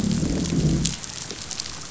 {"label": "biophony, growl", "recorder": "SoundTrap 500"}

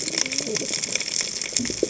{"label": "biophony, cascading saw", "recorder": "HydroMoth"}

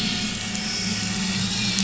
{"label": "anthrophony, boat engine", "recorder": "SoundTrap 500"}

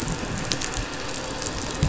{"label": "anthrophony, boat engine", "recorder": "SoundTrap 500"}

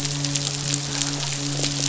{"label": "biophony, midshipman", "recorder": "SoundTrap 500"}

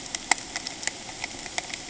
{"label": "ambient", "recorder": "HydroMoth"}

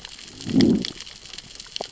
{"label": "biophony, growl", "recorder": "SoundTrap 600 or HydroMoth"}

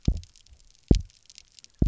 {"label": "biophony, double pulse", "recorder": "SoundTrap 300"}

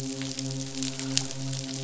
{"label": "biophony, midshipman", "recorder": "SoundTrap 500"}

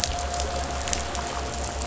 {"label": "anthrophony, boat engine", "recorder": "SoundTrap 500"}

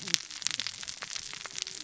{"label": "biophony, cascading saw", "recorder": "SoundTrap 600 or HydroMoth"}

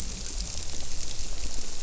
{"label": "biophony", "recorder": "SoundTrap 300"}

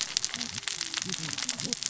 {"label": "biophony, cascading saw", "recorder": "SoundTrap 600 or HydroMoth"}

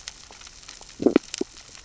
{"label": "biophony, sea urchins (Echinidae)", "recorder": "SoundTrap 600 or HydroMoth"}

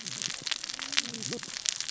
{"label": "biophony, cascading saw", "recorder": "SoundTrap 600 or HydroMoth"}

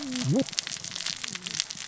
{"label": "biophony, cascading saw", "recorder": "SoundTrap 600 or HydroMoth"}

